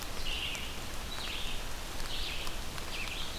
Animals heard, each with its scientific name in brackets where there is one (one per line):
Red-eyed Vireo (Vireo olivaceus)